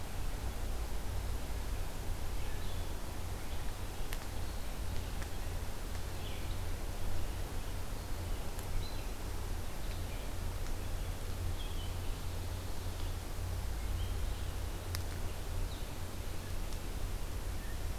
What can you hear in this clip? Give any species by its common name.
Red-eyed Vireo